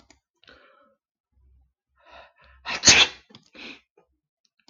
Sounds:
Sneeze